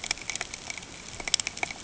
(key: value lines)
label: ambient
recorder: HydroMoth